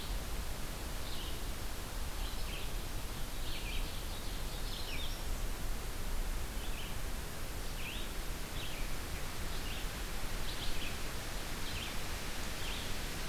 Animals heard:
Red-eyed Vireo (Vireo olivaceus)
American Redstart (Setophaga ruticilla)
Ovenbird (Seiurus aurocapilla)

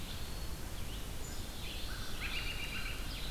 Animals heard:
Black-capped Chickadee (Poecile atricapillus)
Eastern Wood-Pewee (Contopus virens)
Red-eyed Vireo (Vireo olivaceus)
American Robin (Turdus migratorius)
American Crow (Corvus brachyrhynchos)

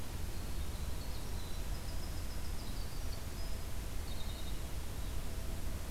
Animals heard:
Winter Wren (Troglodytes hiemalis)

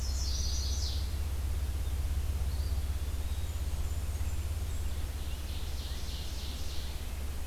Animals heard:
Ovenbird (Seiurus aurocapilla)
Eastern Wood-Pewee (Contopus virens)
Blackburnian Warbler (Setophaga fusca)
Chestnut-sided Warbler (Setophaga pensylvanica)

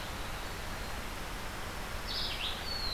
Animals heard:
Red-eyed Vireo (Vireo olivaceus)
Winter Wren (Troglodytes hiemalis)

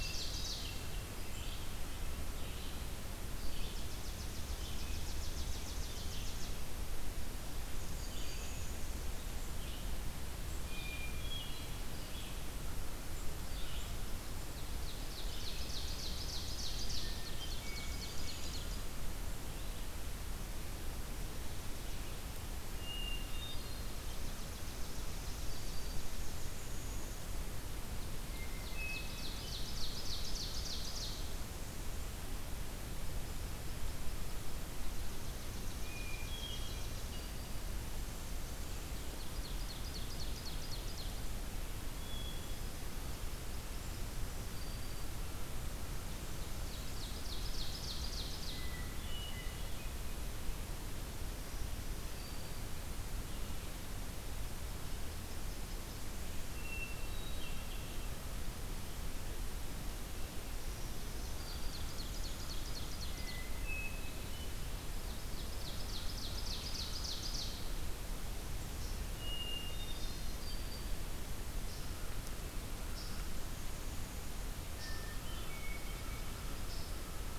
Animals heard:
Hermit Thrush (Catharus guttatus)
Black-capped Chickadee (Poecile atricapillus)
Chipping Sparrow (Spizella passerina)
Ovenbird (Seiurus aurocapilla)
Black-throated Green Warbler (Setophaga virens)

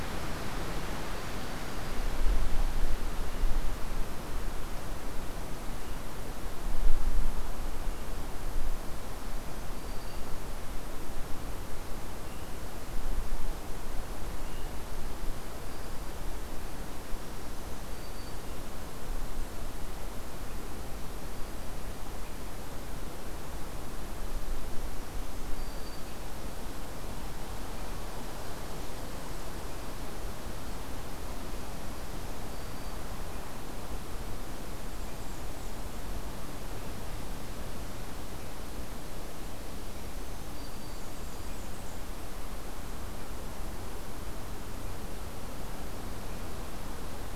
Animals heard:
Blackburnian Warbler (Setophaga fusca)
Black-throated Green Warbler (Setophaga virens)

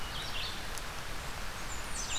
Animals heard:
Red-eyed Vireo (Vireo olivaceus)
Blackburnian Warbler (Setophaga fusca)

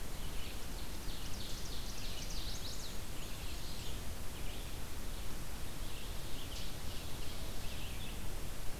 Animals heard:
Ovenbird (Seiurus aurocapilla)
Red-eyed Vireo (Vireo olivaceus)
Black-and-white Warbler (Mniotilta varia)
Chestnut-sided Warbler (Setophaga pensylvanica)

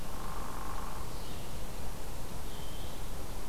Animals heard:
Hairy Woodpecker (Dryobates villosus)
Red-eyed Vireo (Vireo olivaceus)

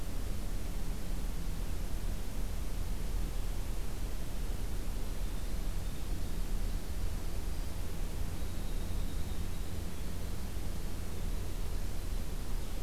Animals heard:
Winter Wren (Troglodytes hiemalis)

